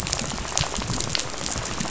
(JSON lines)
{"label": "biophony, rattle", "recorder": "SoundTrap 500"}